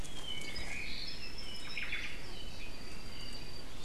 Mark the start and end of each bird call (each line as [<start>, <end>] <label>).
[0.00, 3.80] Apapane (Himatione sanguinea)
[1.60, 2.20] Omao (Myadestes obscurus)